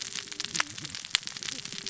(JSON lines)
{"label": "biophony, cascading saw", "recorder": "SoundTrap 600 or HydroMoth"}